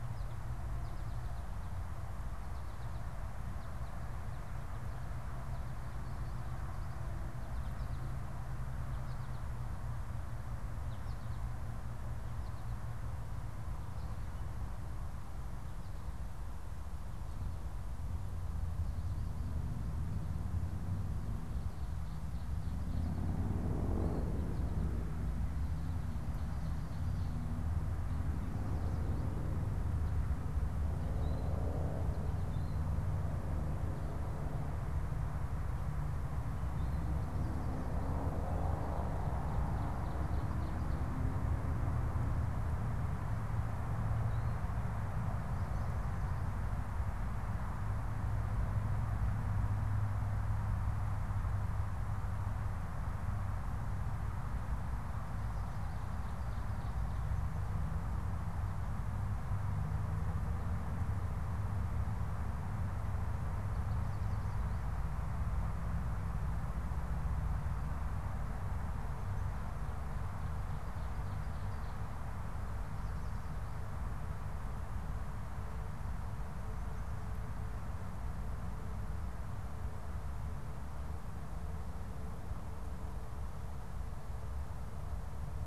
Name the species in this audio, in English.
American Goldfinch, Ovenbird